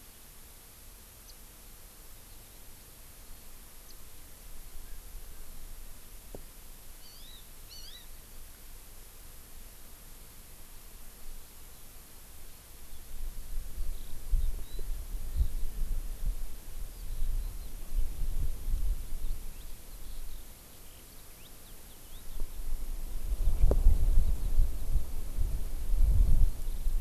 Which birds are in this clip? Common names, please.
Hawaii Amakihi, Eurasian Skylark